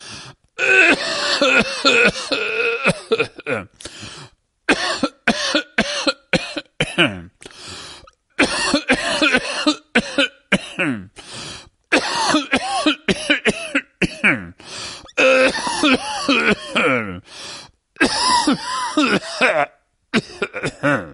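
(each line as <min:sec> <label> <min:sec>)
0:00.5 A person is coughing. 0:11.2
0:11.9 A person is coughing. 0:14.6
0:15.2 A person is coughing. 0:17.3
0:18.0 A person is coughing. 0:21.1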